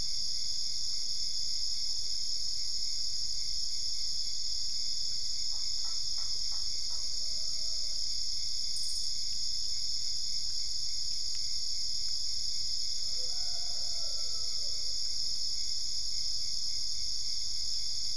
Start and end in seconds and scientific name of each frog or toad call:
5.2	7.6	Boana lundii